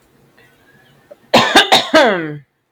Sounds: Cough